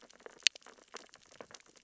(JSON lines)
{"label": "biophony, sea urchins (Echinidae)", "recorder": "SoundTrap 600 or HydroMoth"}